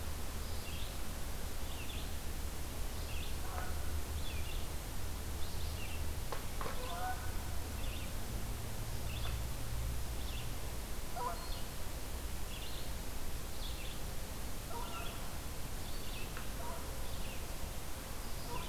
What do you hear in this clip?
Red-eyed Vireo, Canada Goose